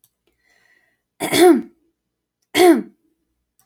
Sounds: Throat clearing